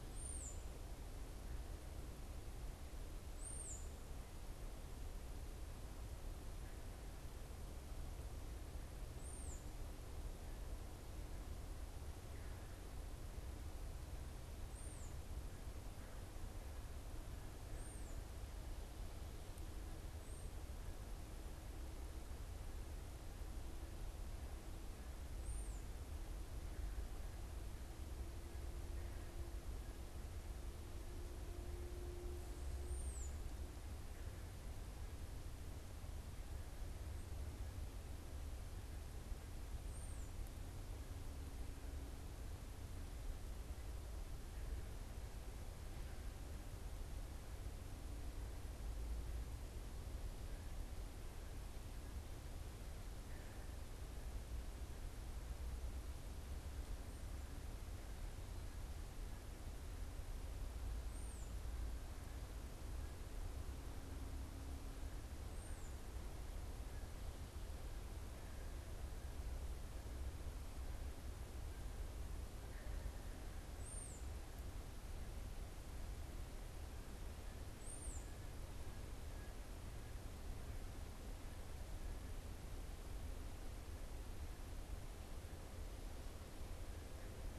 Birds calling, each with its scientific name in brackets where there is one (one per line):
unidentified bird